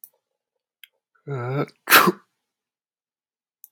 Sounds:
Sneeze